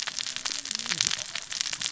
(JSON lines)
{"label": "biophony, cascading saw", "recorder": "SoundTrap 600 or HydroMoth"}